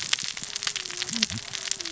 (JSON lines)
{"label": "biophony, cascading saw", "recorder": "SoundTrap 600 or HydroMoth"}